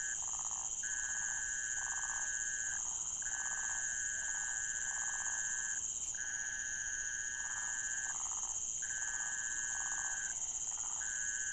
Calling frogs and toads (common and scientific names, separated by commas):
waxy monkey tree frog (Phyllomedusa sauvagii)